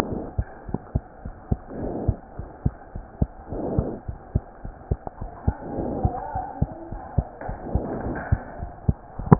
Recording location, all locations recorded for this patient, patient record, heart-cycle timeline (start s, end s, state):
pulmonary valve (PV)
aortic valve (AV)+pulmonary valve (PV)+tricuspid valve (TV)+mitral valve (MV)
#Age: Child
#Sex: Male
#Height: 98.0 cm
#Weight: 15.9 kg
#Pregnancy status: False
#Murmur: Present
#Murmur locations: tricuspid valve (TV)
#Most audible location: tricuspid valve (TV)
#Systolic murmur timing: Holosystolic
#Systolic murmur shape: Plateau
#Systolic murmur grading: I/VI
#Systolic murmur pitch: Low
#Systolic murmur quality: Blowing
#Diastolic murmur timing: nan
#Diastolic murmur shape: nan
#Diastolic murmur grading: nan
#Diastolic murmur pitch: nan
#Diastolic murmur quality: nan
#Outcome: Abnormal
#Campaign: 2015 screening campaign
0.00	1.21	unannotated
1.21	1.33	S1
1.33	1.46	systole
1.46	1.59	S2
1.59	1.79	diastole
1.79	1.90	S1
1.90	2.05	systole
2.05	2.15	S2
2.15	2.37	diastole
2.37	2.48	S1
2.48	2.63	systole
2.63	2.73	S2
2.73	2.93	diastole
2.93	3.02	S1
3.02	3.18	systole
3.18	3.27	S2
3.27	3.49	diastole
3.49	3.60	S1
3.60	3.73	systole
3.73	3.85	S2
3.85	4.06	diastole
4.06	4.15	S1
4.15	4.31	systole
4.31	4.41	S2
4.41	4.62	diastole
4.62	4.74	S1
4.74	4.87	systole
4.87	4.98	S2
4.98	5.19	diastole
5.19	5.31	S1
5.31	5.45	systole
5.45	5.54	S2
5.54	5.74	diastole
5.74	5.86	S1
5.86	6.02	systole
6.02	6.10	S2
6.10	9.39	unannotated